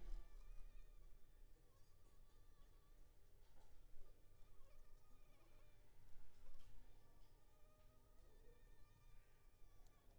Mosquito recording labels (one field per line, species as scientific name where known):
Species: Anopheles funestus s.s.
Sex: female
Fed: unfed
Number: one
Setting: cup